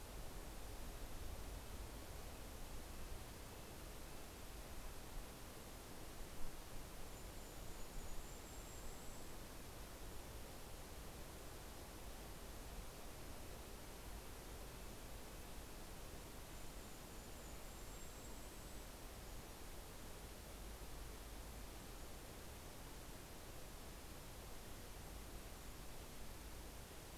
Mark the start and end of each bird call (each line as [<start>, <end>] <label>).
[0.00, 5.80] Red-breasted Nuthatch (Sitta canadensis)
[6.90, 9.80] Golden-crowned Kinglet (Regulus satrapa)
[16.50, 19.30] Golden-crowned Kinglet (Regulus satrapa)